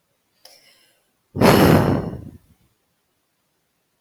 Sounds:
Sigh